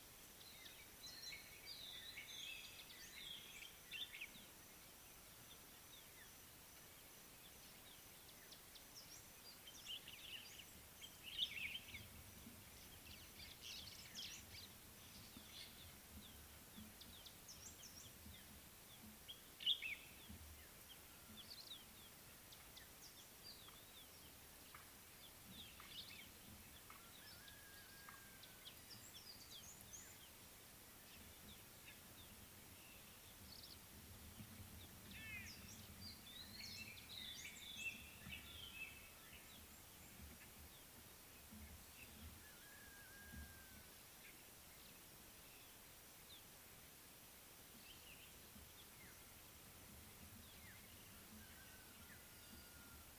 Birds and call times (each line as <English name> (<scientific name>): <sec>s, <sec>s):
White-browed Robin-Chat (Cossypha heuglini): 2.4s, 37.3s
Common Bulbul (Pycnonotus barbatus): 11.4s, 19.7s
White-browed Sparrow-Weaver (Plocepasser mahali): 13.8s
White-bellied Go-away-bird (Corythaixoides leucogaster): 35.3s